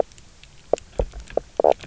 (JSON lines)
{"label": "biophony, knock croak", "recorder": "SoundTrap 300"}